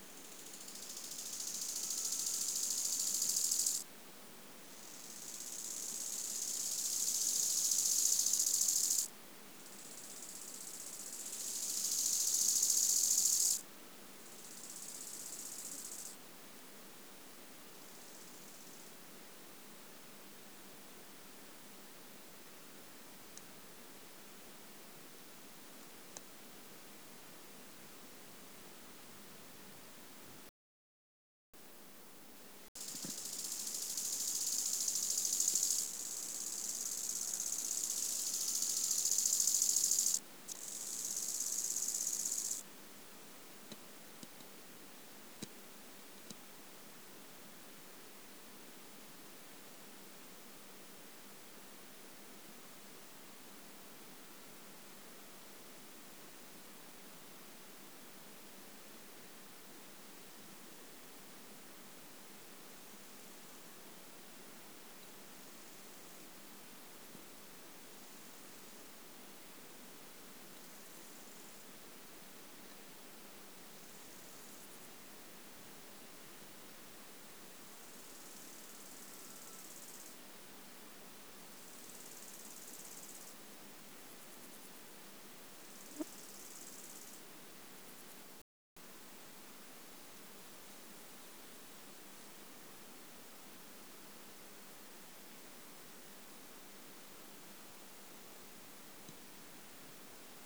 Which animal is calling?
Chorthippus biguttulus, an orthopteran